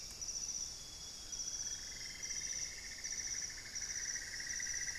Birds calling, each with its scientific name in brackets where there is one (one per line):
Amazonian Grosbeak (Cyanoloxia rothschildii)
Cinnamon-throated Woodcreeper (Dendrexetastes rufigula)
White-necked Thrush (Turdus albicollis)